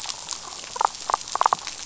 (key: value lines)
label: biophony, damselfish
recorder: SoundTrap 500